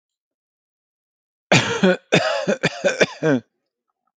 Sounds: Cough